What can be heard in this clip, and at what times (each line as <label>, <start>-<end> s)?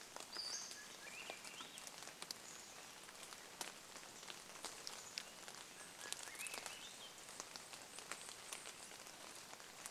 Pacific-slope Flycatcher call, 0-2 s
Swainson's Thrush song, 0-2 s
rain, 0-10 s
Chestnut-backed Chickadee call, 2-6 s
Swainson's Thrush call, 4-6 s
Swainson's Thrush song, 4-8 s
Chestnut-backed Chickadee call, 8-10 s
Swainson's Thrush call, 8-10 s